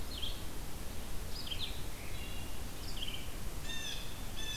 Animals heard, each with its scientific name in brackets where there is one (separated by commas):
Blue Jay (Cyanocitta cristata), Red-eyed Vireo (Vireo olivaceus), Wood Thrush (Hylocichla mustelina)